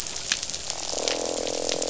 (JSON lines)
{"label": "biophony, croak", "recorder": "SoundTrap 500"}